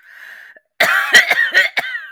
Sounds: Cough